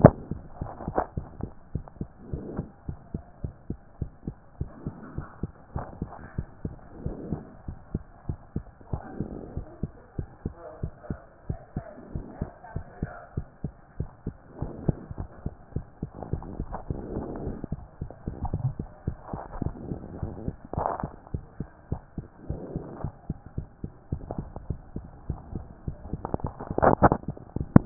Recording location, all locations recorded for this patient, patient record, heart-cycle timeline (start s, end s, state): mitral valve (MV)
aortic valve (AV)+pulmonary valve (PV)+tricuspid valve (TV)+mitral valve (MV)
#Age: Child
#Sex: Female
#Height: 113.0 cm
#Weight: 21.2 kg
#Pregnancy status: False
#Murmur: Absent
#Murmur locations: nan
#Most audible location: nan
#Systolic murmur timing: nan
#Systolic murmur shape: nan
#Systolic murmur grading: nan
#Systolic murmur pitch: nan
#Systolic murmur quality: nan
#Diastolic murmur timing: nan
#Diastolic murmur shape: nan
#Diastolic murmur grading: nan
#Diastolic murmur pitch: nan
#Diastolic murmur quality: nan
#Outcome: Abnormal
#Campaign: 2014 screening campaign
0.00	0.20	S1
0.20	0.30	systole
0.30	0.42	S2
0.42	0.60	diastole
0.60	0.72	S1
0.72	0.84	systole
0.84	0.96	S2
0.96	1.16	diastole
1.16	1.28	S1
1.28	1.38	systole
1.38	1.52	S2
1.52	1.74	diastole
1.74	1.86	S1
1.86	2.00	systole
2.00	2.08	S2
2.08	2.30	diastole
2.30	2.44	S1
2.44	2.54	systole
2.54	2.66	S2
2.66	2.88	diastole
2.88	2.98	S1
2.98	3.10	systole
3.10	3.22	S2
3.22	3.42	diastole
3.42	3.54	S1
3.54	3.66	systole
3.66	3.78	S2
3.78	4.00	diastole
4.00	4.12	S1
4.12	4.26	systole
4.26	4.36	S2
4.36	4.56	diastole
4.56	4.70	S1
4.70	4.84	systole
4.84	4.94	S2
4.94	5.14	diastole
5.14	5.26	S1
5.26	5.40	systole
5.40	5.52	S2
5.52	5.74	diastole
5.74	5.86	S1
5.86	5.98	systole
5.98	6.10	S2
6.10	6.34	diastole
6.34	6.48	S1
6.48	6.64	systole
6.64	6.78	S2
6.78	7.00	diastole
7.00	7.16	S1
7.16	7.26	systole
7.26	7.42	S2
7.42	7.66	diastole
7.66	7.76	S1
7.76	7.90	systole
7.90	8.04	S2
8.04	8.28	diastole
8.28	8.38	S1
8.38	8.52	systole
8.52	8.66	S2
8.66	8.92	diastole
8.92	9.02	S1
9.02	9.18	systole
9.18	9.30	S2
9.30	9.54	diastole
9.54	9.66	S1
9.66	9.80	systole
9.80	9.92	S2
9.92	10.18	diastole
10.18	10.28	S1
10.28	10.44	systole
10.44	10.56	S2
10.56	10.82	diastole
10.82	10.92	S1
10.92	11.06	systole
11.06	11.20	S2
11.20	11.46	diastole
11.46	11.58	S1
11.58	11.76	systole
11.76	11.86	S2
11.86	12.12	diastole
12.12	12.26	S1
12.26	12.40	systole
12.40	12.52	S2
12.52	12.74	diastole
12.74	12.84	S1
12.84	12.98	systole
12.98	13.12	S2
13.12	13.36	diastole
13.36	13.46	S1
13.46	13.64	systole
13.64	13.74	S2
13.74	13.96	diastole
13.96	14.08	S1
14.08	14.26	systole
14.26	14.36	S2
14.36	14.60	diastole
14.60	14.74	S1
14.74	14.86	systole
14.86	15.00	S2
15.00	15.18	diastole
15.18	15.28	S1
15.28	15.42	systole
15.42	15.56	S2
15.56	15.76	diastole
15.76	15.86	S1
15.86	16.02	systole
16.02	16.12	S2
16.12	16.30	diastole
16.30	16.44	S1
16.44	16.56	systole
16.56	16.68	S2
16.68	16.88	diastole
16.88	17.06	S1
17.06	17.12	systole
17.12	17.26	S2
17.26	17.44	diastole
17.44	17.58	S1
17.58	17.72	systole
17.72	17.84	S2
17.84	18.02	diastole
18.02	18.12	S1
18.12	18.26	systole
18.26	18.38	S2
18.38	18.56	diastole
18.56	18.74	S1
18.74	18.80	systole
18.80	18.90	S2
18.90	19.08	diastole
19.08	19.18	S1
19.18	19.34	systole
19.34	19.42	S2
19.42	19.60	diastole
19.60	19.76	S1
19.76	19.86	systole
19.86	20.00	S2
20.00	20.20	diastole
20.20	20.36	S1
20.36	20.46	systole
20.46	20.58	S2
20.58	20.76	diastole
20.76	20.90	S1
20.90	21.02	systole
21.02	21.12	S2
21.12	21.34	diastole
21.34	21.44	S1
21.44	21.56	systole
21.56	21.66	S2
21.66	21.88	diastole
21.88	22.02	S1
22.02	22.18	systole
22.18	22.28	S2
22.28	22.48	diastole
22.48	22.62	S1
22.62	22.74	systole
22.74	22.84	S2
22.84	23.02	diastole
23.02	23.14	S1
23.14	23.26	systole
23.26	23.36	S2
23.36	23.56	diastole
23.56	23.68	S1
23.68	23.84	systole
23.84	23.92	S2
23.92	24.12	diastole
24.12	24.24	S1
24.24	24.36	systole
24.36	24.48	S2
24.48	24.68	diastole
24.68	24.82	S1
24.82	24.96	systole
24.96	25.08	S2
25.08	25.26	diastole
25.26	25.42	S1
25.42	25.54	systole
25.54	25.68	S2
25.68	25.86	diastole
25.86	25.98	S1
25.98	26.10	systole
26.10	26.22	S2
26.22	26.42	diastole
26.42	26.54	S1
26.54	26.60	systole
26.60	26.66	S2
26.66	26.84	diastole
26.84	27.00	S1
27.00	27.04	systole
27.04	27.20	S2
27.20	27.48	diastole
27.48	27.62	S1
27.62	27.74	systole
27.74	27.86	S2